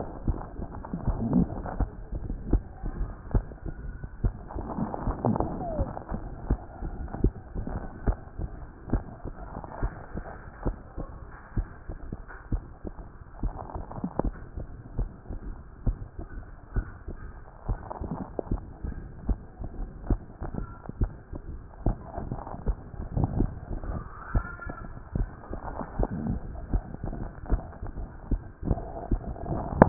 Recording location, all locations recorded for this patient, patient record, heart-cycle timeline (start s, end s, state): mitral valve (MV)
aortic valve (AV)+aortic valve (AV)+pulmonary valve (PV)+pulmonary valve (PV)+tricuspid valve (TV)+mitral valve (MV)
#Age: Adolescent
#Sex: Female
#Height: 142.0 cm
#Weight: 26.5 kg
#Pregnancy status: False
#Murmur: Present
#Murmur locations: aortic valve (AV)+pulmonary valve (PV)+tricuspid valve (TV)
#Most audible location: tricuspid valve (TV)
#Systolic murmur timing: Holosystolic
#Systolic murmur shape: Decrescendo
#Systolic murmur grading: I/VI
#Systolic murmur pitch: Medium
#Systolic murmur quality: Harsh
#Diastolic murmur timing: nan
#Diastolic murmur shape: nan
#Diastolic murmur grading: nan
#Diastolic murmur pitch: nan
#Diastolic murmur quality: nan
#Outcome: Abnormal
#Campaign: 2014 screening campaign
0.00	8.06	unannotated
8.06	8.18	S1
8.18	8.38	systole
8.38	8.50	S2
8.50	8.92	diastole
8.92	9.04	S1
9.04	9.24	systole
9.24	9.34	S2
9.34	9.82	diastole
9.82	9.92	S1
9.92	10.14	systole
10.14	10.24	S2
10.24	10.64	diastole
10.64	10.76	S1
10.76	10.98	systole
10.98	11.08	S2
11.08	11.56	diastole
11.56	11.68	S1
11.68	11.90	systole
11.90	11.98	S2
11.98	12.52	diastole
12.52	12.64	S1
12.64	12.86	systole
12.86	12.94	S2
12.94	13.42	diastole
13.42	13.54	S1
13.54	13.74	systole
13.74	13.84	S2
13.84	14.22	diastole
14.22	14.34	S1
14.34	14.56	systole
14.56	14.66	S2
14.66	14.98	diastole
14.98	15.10	S1
15.10	15.30	systole
15.30	15.38	S2
15.38	15.86	diastole
15.86	15.98	S1
15.98	16.20	systole
16.20	16.26	S2
16.26	16.74	diastole
16.74	16.86	S1
16.86	17.08	systole
17.08	17.16	S2
17.16	17.68	diastole
17.68	17.80	S1
17.80	18.02	systole
18.02	18.12	S2
18.12	18.50	diastole
18.50	18.62	S1
18.62	18.87	systole
18.87	18.96	S2
18.96	19.30	diastole
19.30	29.89	unannotated